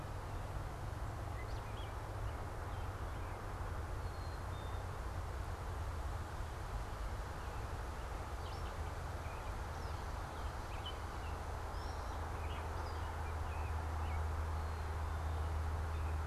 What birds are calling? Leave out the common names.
Turdus migratorius, Dumetella carolinensis, Poecile atricapillus